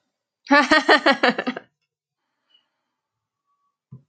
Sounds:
Laughter